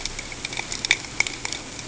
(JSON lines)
{"label": "ambient", "recorder": "HydroMoth"}